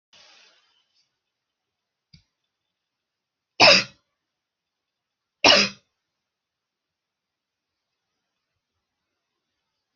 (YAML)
expert_labels:
- quality: ok
  cough_type: dry
  dyspnea: false
  wheezing: false
  stridor: false
  choking: false
  congestion: false
  nothing: true
  diagnosis: COVID-19
  severity: mild
age: 24
gender: female
respiratory_condition: false
fever_muscle_pain: false
status: symptomatic